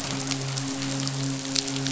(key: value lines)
label: biophony, midshipman
recorder: SoundTrap 500